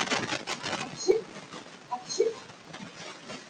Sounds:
Sneeze